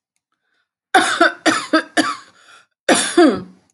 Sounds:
Cough